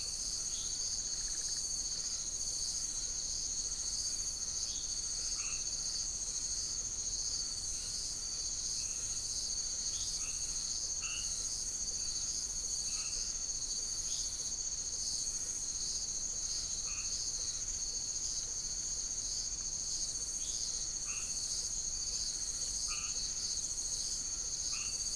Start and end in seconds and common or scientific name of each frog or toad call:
0.0	25.1	blacksmith tree frog
5.0	5.9	marbled tropical bullfrog
8.0	13.5	marbled tropical bullfrog
16.6	17.3	marbled tropical bullfrog
20.9	25.1	marbled tropical bullfrog